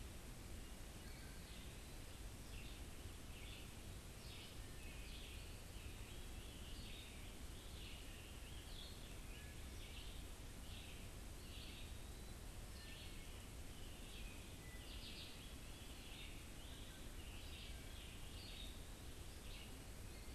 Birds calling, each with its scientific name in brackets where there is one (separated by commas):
Eastern Wood-Pewee (Contopus virens), Scarlet Tanager (Piranga olivacea), Wood Thrush (Hylocichla mustelina), Red-eyed Vireo (Vireo olivaceus)